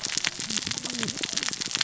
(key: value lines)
label: biophony, cascading saw
recorder: SoundTrap 600 or HydroMoth